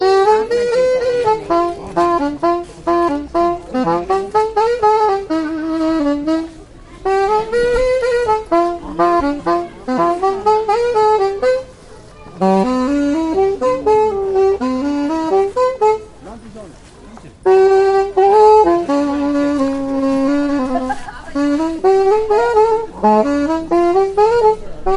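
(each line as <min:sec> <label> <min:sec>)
0:00.0 A trumpet plays a loud, rhythmic melodic tune. 0:16.0
0:00.0 People talking in the background in a murmur. 0:25.0
0:17.5 A trumpet plays a melodic, loud, rhythmic tune. 0:25.0
0:20.7 A woman laughs repeatedly in the background. 0:21.8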